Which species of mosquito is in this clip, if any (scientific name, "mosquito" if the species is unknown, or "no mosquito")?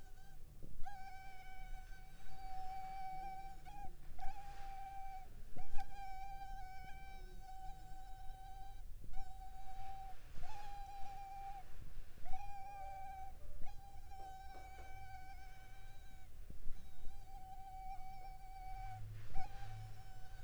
Culex pipiens complex